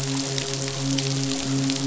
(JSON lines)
{"label": "biophony, midshipman", "recorder": "SoundTrap 500"}